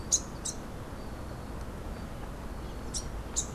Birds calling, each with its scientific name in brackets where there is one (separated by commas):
Rufous-capped Warbler (Basileuterus rufifrons)